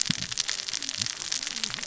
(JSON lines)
{"label": "biophony, cascading saw", "recorder": "SoundTrap 600 or HydroMoth"}